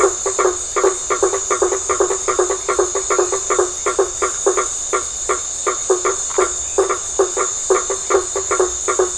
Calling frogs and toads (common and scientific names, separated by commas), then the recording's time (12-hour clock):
blacksmith tree frog (Boana faber)
8:15pm